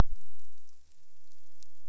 {"label": "biophony", "recorder": "SoundTrap 300"}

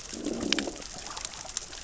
{"label": "biophony, growl", "recorder": "SoundTrap 600 or HydroMoth"}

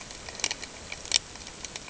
{"label": "ambient", "recorder": "HydroMoth"}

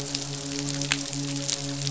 {"label": "biophony, midshipman", "recorder": "SoundTrap 500"}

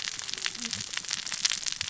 {"label": "biophony, cascading saw", "recorder": "SoundTrap 600 or HydroMoth"}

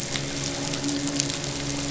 {"label": "anthrophony, boat engine", "recorder": "SoundTrap 500"}
{"label": "biophony, midshipman", "recorder": "SoundTrap 500"}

